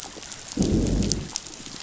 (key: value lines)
label: biophony, growl
recorder: SoundTrap 500